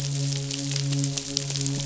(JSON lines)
{"label": "biophony, midshipman", "recorder": "SoundTrap 500"}